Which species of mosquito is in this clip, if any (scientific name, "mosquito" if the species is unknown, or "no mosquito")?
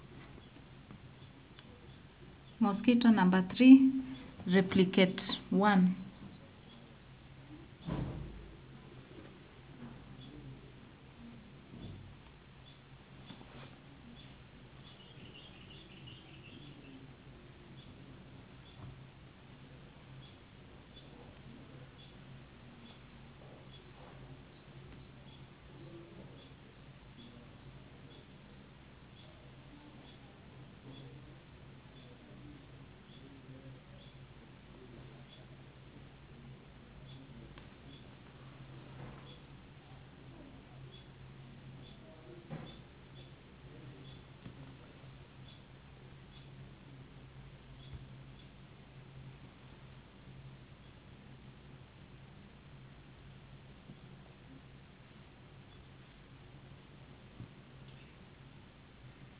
no mosquito